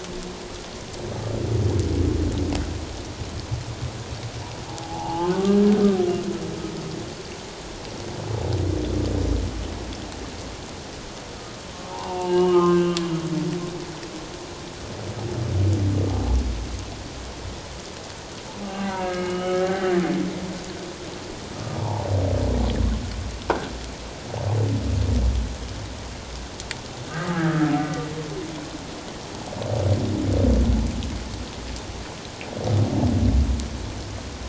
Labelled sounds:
4.7	5.3	humpback whale, 0.78 to 1.1 kHz
11.9	12.9	humpback whale, 0.78 to 3.0 kHz
18.7	19.9	humpback whale, 0.78 to 3.0 kHz
21.8	22.0	humpback whale, 0.81 to 0.97 kHz
27.1	27.6	humpback whale, 1.2 to 1.8 kHz

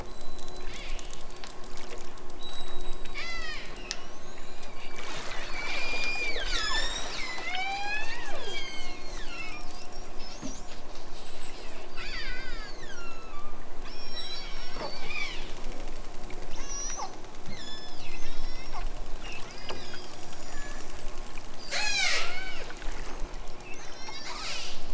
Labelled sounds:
0.0	1.3	killer whale, southern Alaska resident, 1.4 to 8.0 kHz
2.4	3.8	killer whale, southern Alaska resident, 0.87 to 8.0 kHz
4.4	9.9	killer whale, southern Alaska resident, 0.51 to 8.0 kHz
11.9	13.5	killer whale, southern Alaska resident, 1.1 to 8.0 kHz
13.8	15.6	killer whale, southern Alaska resident, 0.92 to 8.0 kHz
16.6	17.1	killer whale, southern Alaska resident, 0.64 to 8.0 kHz
17.5	18.9	killer whale, southern Alaska resident, 1.6 to 8.0 kHz
19.5	20.9	killer whale, southern Alaska resident, 1.3 to 8.0 kHz
21.6	22.7	killer whale, southern Alaska resident, 0.28 to 8.0 kHz
23.8	24.8	killer whale, southern Alaska resident, 0.69 to 8.0 kHz

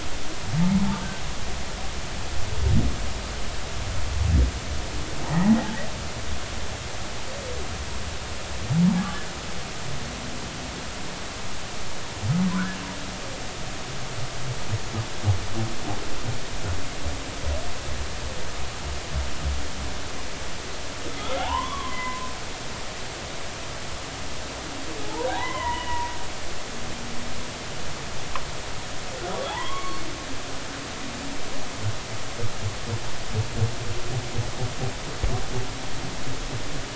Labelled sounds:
5.3	5.5	humpback whale, 1.7 to 2.0 kHz
12.5	12.8	humpback whale, 1.2 to 1.8 kHz
21.2	22.3	humpback whale, 0.80 to 2.1 kHz
25.0	26.1	humpback whale, 0.80 to 3.0 kHz
29.5	30.0	humpback whale, 0.80 to 2.3 kHz

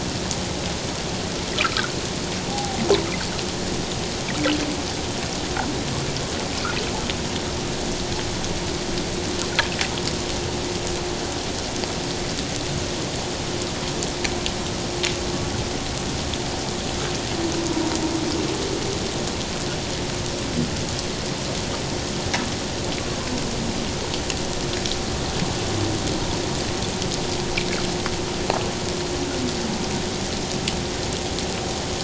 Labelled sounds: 1.6	1.9	water noise, 1.2 to 1.7 kHz
2.5	2.8	humpback whale, 0.78 to 0.88 kHz

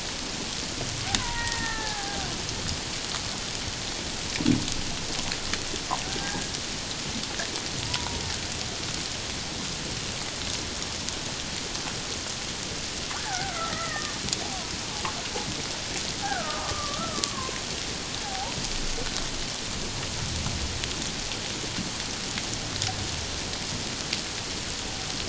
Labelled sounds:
1.2	2.3	killer whale, Bigg's (transient), 0.78 to 2.0 kHz
6.0	6.5	killer whale, Bigg's (transient), 1.4 to 2.0 kHz
7.8	8.2	killer whale, Bigg's (transient), 0.88 to 1.0 kHz
13.2	14.2	killer whale, Bigg's (transient), 0.78 to 2.1 kHz
16.2	17.6	killer whale, Bigg's (transient), 0.91 to 1.7 kHz
18.2	18.6	killer whale, Bigg's (transient), 0.78 to 1.0 kHz

